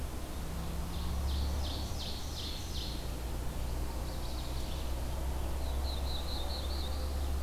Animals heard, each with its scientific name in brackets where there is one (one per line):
Chestnut-sided Warbler (Setophaga pensylvanica)
Ovenbird (Seiurus aurocapilla)
Red-eyed Vireo (Vireo olivaceus)
Black-throated Blue Warbler (Setophaga caerulescens)